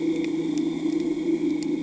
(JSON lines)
{"label": "anthrophony, boat engine", "recorder": "HydroMoth"}